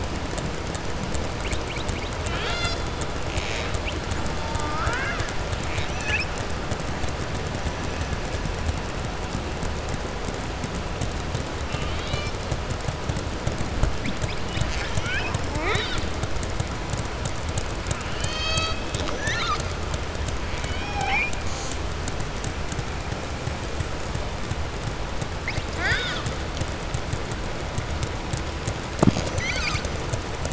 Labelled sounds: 2.2	2.8	killer whale, southern resident, 0.70 to 7.8 kHz
20.5	21.4	killer whale, southern resident, 0.78 to 3.8 kHz
25.7	26.4	killer whale, southern resident, 0.68 to 7.8 kHz

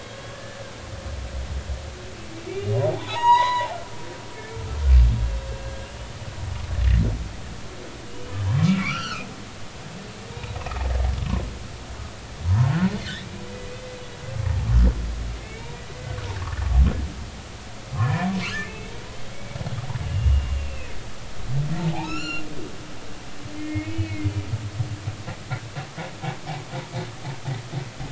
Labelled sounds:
0.3	0.6	humpback whale, 1.7 to 1.8 kHz
2.5	3.8	humpback whale, 0.80 to 7.8 kHz
4.3	4.6	humpback whale, 2.1 to 2.3 kHz
5.8	6.2	humpback whale, 2.7 to 3.0 kHz
8.1	9.3	humpback whale, 1.0 to 6.0 kHz
10.3	10.6	humpback whale, 3.7 to 3.9 kHz
12.5	12.7	humpback whale, 0.90 to 1.1 kHz
15.3	15.7	humpback whale, 2.0 to 2.8 kHz
17.9	18.9	humpback whale, 0.96 to 2.7 kHz
20.1	21.0	humpback whale, 2.5 to 2.9 kHz
21.9	22.4	humpback whale, 1.2 to 7.2 kHz
23.6	24.3	humpback whale, 1.8 to 2.6 kHz

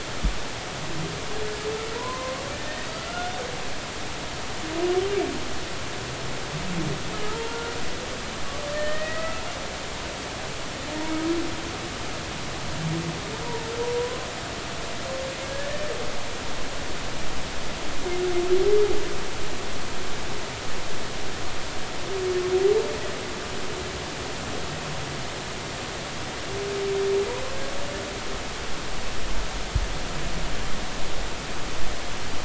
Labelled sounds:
1.9	3.3	humpback whale, 0.93 to 2.0 kHz
7.5	7.7	humpback whale, 1.3 to 1.5 kHz
8.3	9.4	humpback whale, 0.86 to 2.0 kHz
14.0	14.3	humpback whale, 0.93 to 1.1 kHz
15.4	15.7	humpback whale, 1.6 to 1.8 kHz

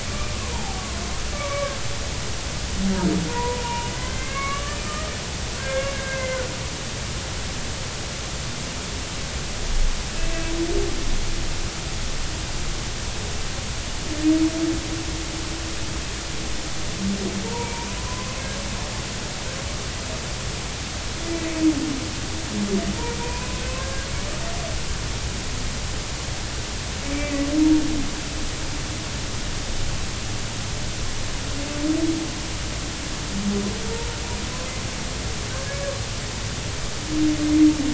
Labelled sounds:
0.5	1.8	humpback whale, 0.80 to 2.4 kHz
3.3	6.5	humpback whale, 0.90 to 2.9 kHz
17.5	18.4	humpback whale, 0.86 to 2.4 kHz
23.2	24.1	humpback whale, 0.90 to 2.6 kHz
27.1	27.5	humpback whale, 1.9 to 2.4 kHz
35.7	36.0	humpback whale, 1.1 to 1.2 kHz

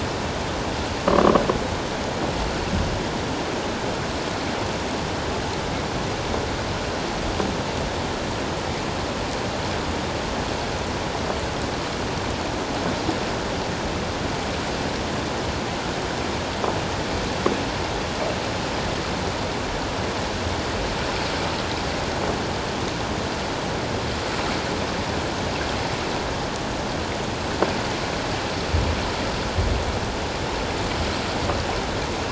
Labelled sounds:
1.1	1.3	croaking sound likely from a nearby submerged object, 1.0 to 1.3 kHz

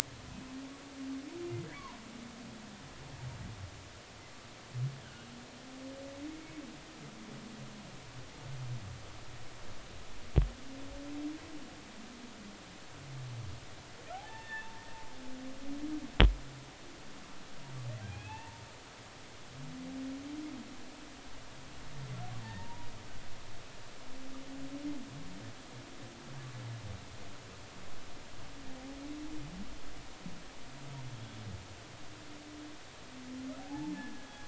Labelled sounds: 14.1	14.7	humpback whale, 0.80 to 2.8 kHz
18.0	18.6	humpback whale, 0.80 to 2.8 kHz
22.4	22.9	humpback whale, 0.83 to 1.9 kHz
33.6	34.4	humpback whale, 0.80 to 1.8 kHz

